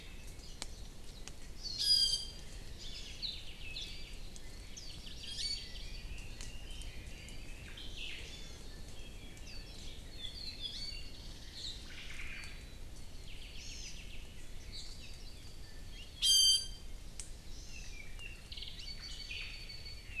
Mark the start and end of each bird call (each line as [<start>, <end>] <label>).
[1.50, 1.90] Hawaii Amakihi (Chlorodrepanis virens)
[1.70, 4.30] Iiwi (Drepanis coccinea)
[2.70, 4.20] Apapane (Himatione sanguinea)
[3.20, 3.50] Hawaii Akepa (Loxops coccineus)
[3.80, 4.00] Warbling White-eye (Zosterops japonicus)
[4.60, 6.10] Hawaii Amakihi (Chlorodrepanis virens)
[4.70, 5.00] Warbling White-eye (Zosterops japonicus)
[5.00, 7.80] Red-billed Leiothrix (Leiothrix lutea)
[5.10, 5.80] Iiwi (Drepanis coccinea)
[7.60, 8.40] Omao (Myadestes obscurus)
[8.20, 8.70] Iiwi (Drepanis coccinea)
[9.40, 9.70] Warbling White-eye (Zosterops japonicus)
[10.00, 11.20] Apapane (Himatione sanguinea)
[10.60, 11.10] Iiwi (Drepanis coccinea)
[11.00, 11.80] Chinese Hwamei (Garrulax canorus)
[11.80, 12.70] Omao (Myadestes obscurus)
[13.20, 14.30] Apapane (Himatione sanguinea)
[13.50, 14.00] Hawaii Amakihi (Chlorodrepanis virens)
[14.60, 15.00] Chinese Hwamei (Garrulax canorus)
[16.10, 17.00] Iiwi (Drepanis coccinea)
[17.40, 18.00] Hawaii Amakihi (Chlorodrepanis virens)
[17.60, 20.20] Apapane (Himatione sanguinea)